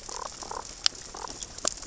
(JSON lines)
{"label": "biophony, damselfish", "recorder": "SoundTrap 600 or HydroMoth"}